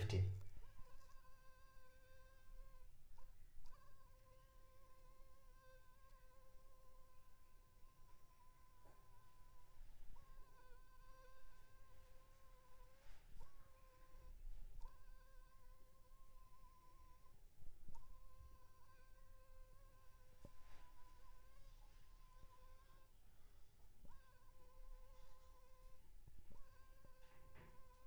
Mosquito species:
Anopheles funestus s.s.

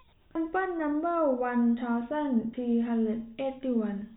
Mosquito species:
no mosquito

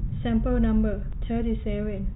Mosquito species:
no mosquito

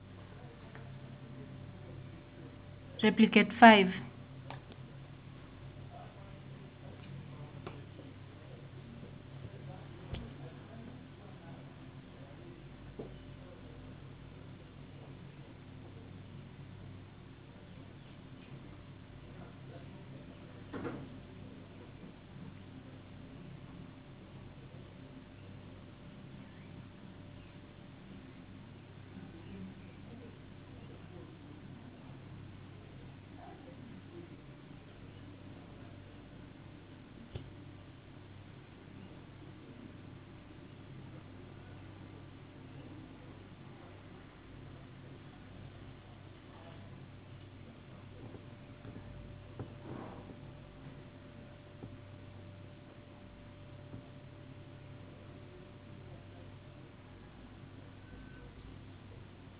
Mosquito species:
no mosquito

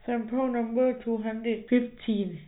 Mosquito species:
no mosquito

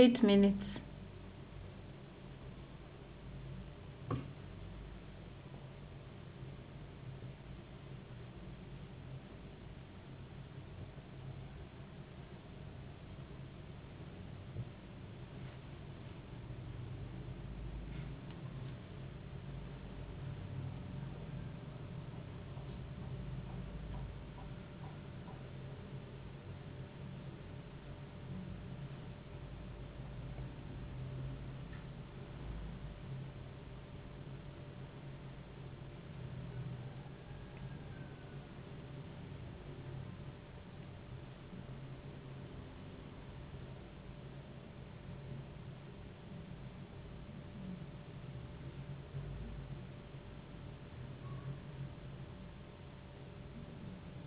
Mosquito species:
no mosquito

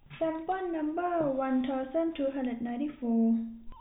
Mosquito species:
no mosquito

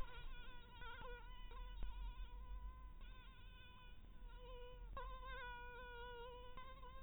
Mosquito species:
mosquito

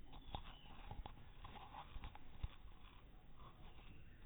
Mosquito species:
no mosquito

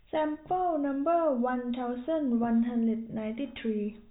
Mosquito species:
no mosquito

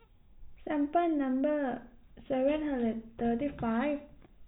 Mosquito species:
no mosquito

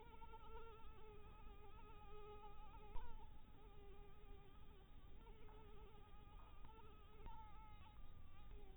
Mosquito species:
Anopheles dirus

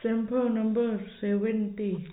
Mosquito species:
no mosquito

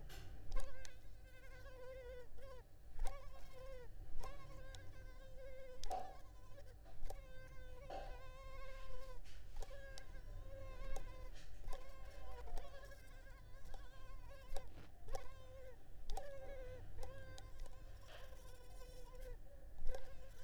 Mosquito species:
Culex pipiens complex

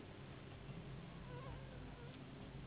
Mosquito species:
Anopheles gambiae s.s.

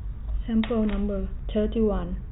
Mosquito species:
no mosquito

